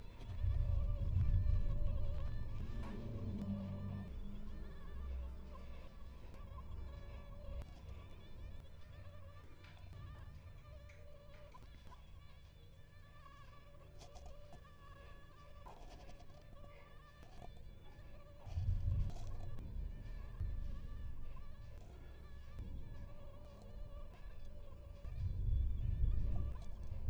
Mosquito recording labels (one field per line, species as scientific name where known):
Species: Anopheles gambiae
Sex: female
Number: one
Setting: cup